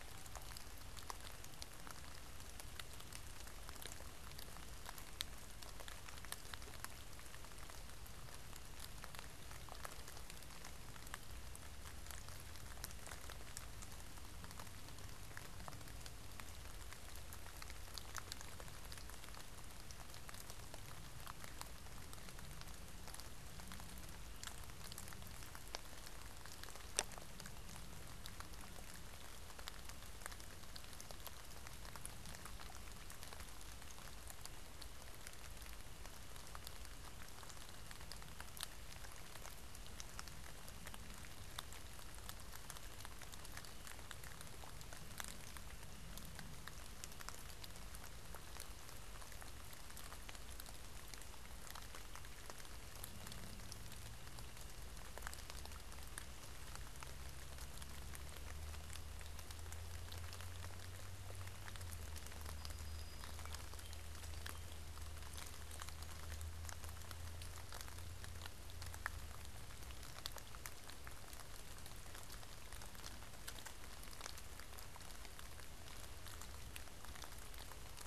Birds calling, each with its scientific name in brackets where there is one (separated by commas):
Song Sparrow (Melospiza melodia)